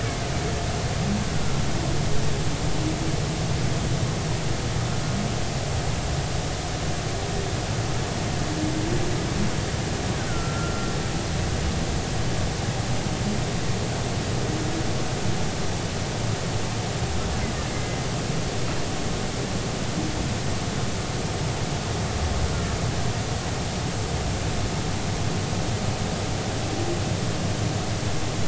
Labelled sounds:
10.3	10.9	killer whale, Bigg's (transient), 1.3 to 1.5 kHz
17.7	18.0	killer whale, Bigg's (transient), 1.9 to 2.1 kHz

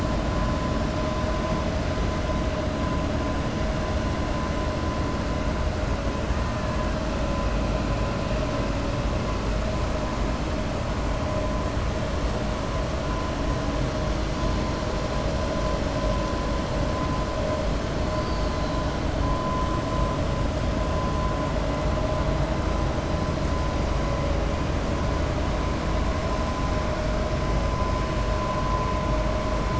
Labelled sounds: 18.1	18.8	killer whale, 4.0 to 5.1 kHz

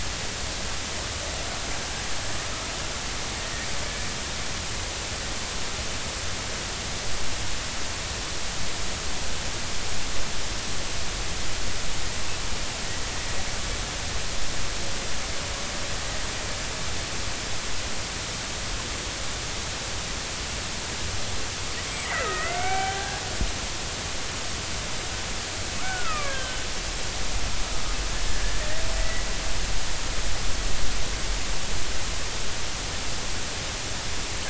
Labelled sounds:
22.0	23.2	killer whale, Bigg's (transient), 0.80 to 2.4 kHz
23.7	24.0	killer whale, Bigg's (transient), 3.0 to 3.1 kHz
25.8	26.6	killer whale, Bigg's (transient), 1.1 to 3.3 kHz
28.9	29.3	killer whale, Bigg's (transient), 1.9 to 2.0 kHz

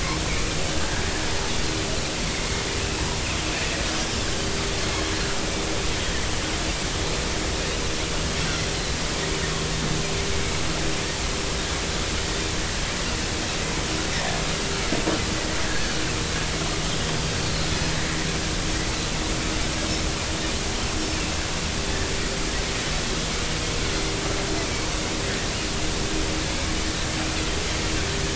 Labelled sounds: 0.8	1.0	Pacific white-sided dolphin, 1.5 to 1.9 kHz
2.2	2.6	Pacific white-sided dolphin, 2.0 to 2.3 kHz
14.1	14.4	Pacific white-sided dolphin, 1.7 to 2.0 kHz
15.6	15.9	Pacific white-sided dolphin, 1.5 to 1.8 kHz

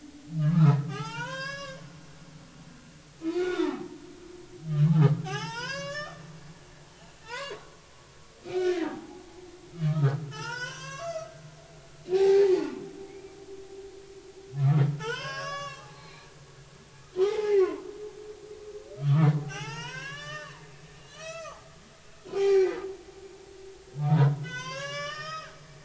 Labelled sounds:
0.4	1.8	humpback whale, 0.80 to 7.4 kHz
3.2	3.9	humpback whale, 0.80 to 3.7 kHz
5.2	6.2	humpback whale, 0.80 to 7.1 kHz
7.2	7.6	humpback whale, 0.83 to 4.9 kHz
8.4	9.2	humpback whale, 0.80 to 2.6 kHz
9.9	11.3	humpback whale, 0.83 to 7.7 kHz
12.1	12.4	humpback whale, 0.80 to 1.6 kHz
14.6	16.3	humpback whale, 0.80 to 7.7 kHz
17.2	17.8	humpback whale, 0.80 to 2.2 kHz
19.0	21.7	humpback whale, 0.80 to 6.7 kHz
22.3	22.8	humpback whale, 0.80 to 5.6 kHz
24.1	25.5	humpback whale, 0.86 to 7.9 kHz

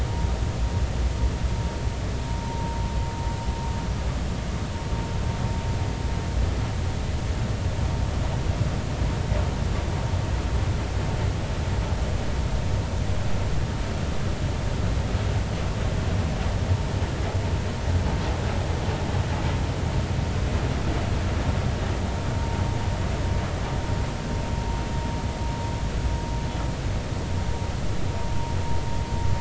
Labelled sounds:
2.4	2.8	vessel noise, 0.86 to 1.0 kHz

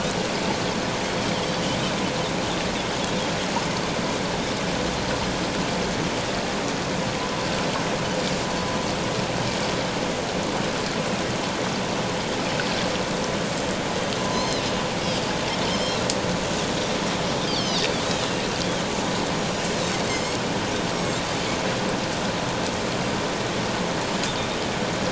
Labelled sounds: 14.3	14.6	Pacific white-sided dolphin, 0.88 to 5.3 kHz
15.7	16.0	Pacific white-sided dolphin, 3.0 to 5.4 kHz
17.5	17.9	Pacific white-sided dolphin, 3.4 to 5.6 kHz
18.6	18.9	Pacific white-sided dolphin, 3.0 to 3.4 kHz
21.0	21.2	Pacific white-sided dolphin, 7.2 to 7.8 kHz

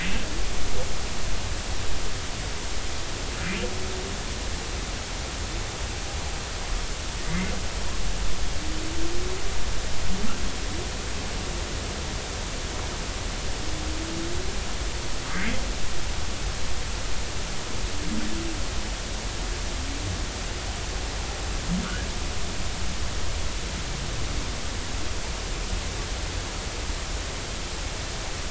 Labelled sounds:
7.3	7.5	humpback whale, 1.9 to 2.2 kHz

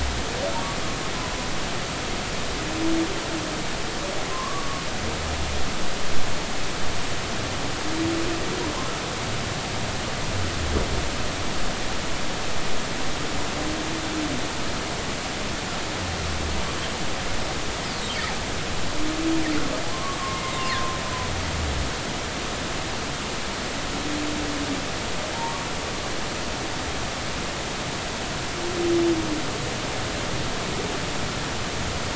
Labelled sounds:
4.3	4.8	humpback whale, 0.96 to 1.2 kHz
19.9	21.0	humpback whale, 0.90 to 2.2 kHz
25.3	25.7	humpback whale, 0.86 to 1.2 kHz

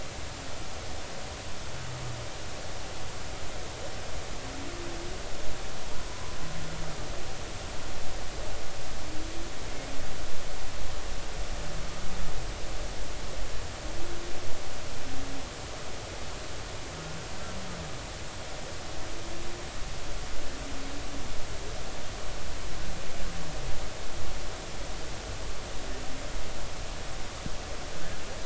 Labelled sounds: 6.1	6.4	humpback whale, 0.96 to 1.1 kHz

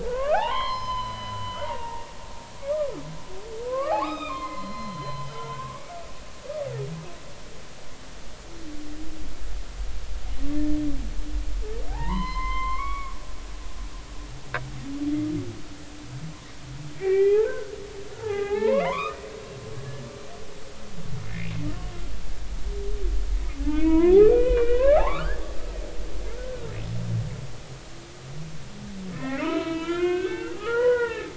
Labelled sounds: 0.0	2.0	humpback whale, 0.80 to 5.2 kHz
2.6	2.9	humpback whale, 1.1 to 1.3 kHz
3.7	5.9	humpback whale, 0.80 to 5.1 kHz
11.9	13.1	humpback whale, 0.80 to 4.2 kHz
17.0	17.7	humpback whale, 0.80 to 2.6 kHz
18.1	19.2	humpback whale, 0.80 to 3.2 kHz
21.2	21.5	humpback whale, 2.0 to 2.6 kHz
23.6	25.4	humpback whale, 0.80 to 3.2 kHz
26.3	26.7	humpback whale, 1.3 to 1.6 kHz
29.1	31.3	humpback whale, 0.83 to 4.1 kHz

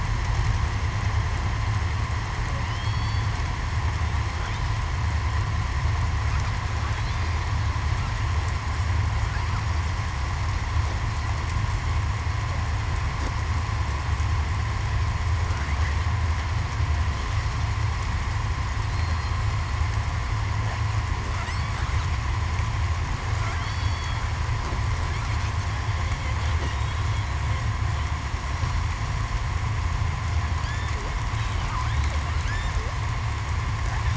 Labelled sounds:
2.7	3.3	killer whale, southern resident, 2.9 to 3.4 kHz
23.6	24.2	killer whale, southern resident, 3.1 to 8.0 kHz
27.0	27.4	killer whale, southern resident, 4.0 to 4.1 kHz

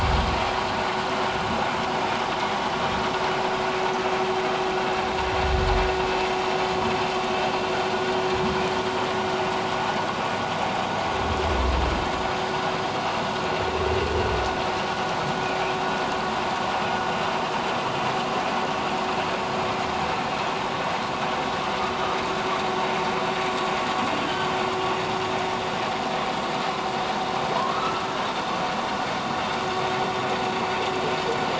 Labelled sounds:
24.2	24.5	humpback whale, 3.0 to 3.3 kHz
27.6	28.0	humpback whale, 0.94 to 1.4 kHz

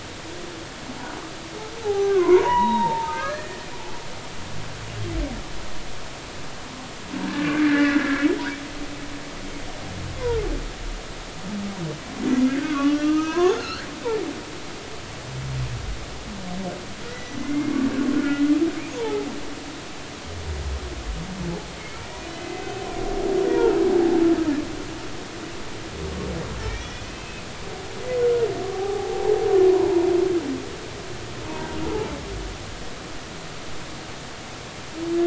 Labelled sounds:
1.8	3.6	humpback whale, 0.80 to 3.9 kHz
7.1	8.3	humpback whale, 1.4 to 2.1 kHz
10.2	10.4	humpback whale, 0.83 to 1.1 kHz
12.2	13.9	humpback whale, 0.90 to 6.6 kHz
17.1	17.8	humpback whale, 1.9 to 6.1 kHz
18.1	19.3	humpback whale, 0.80 to 2.1 kHz
22.3	22.7	humpback whale, 2.0 to 2.6 kHz
26.7	27.5	humpback whale, 2.2 to 5.9 kHz
28.7	29.4	humpback whale, 0.80 to 0.96 kHz
29.7	30.1	humpback whale, 0.83 to 1.1 kHz

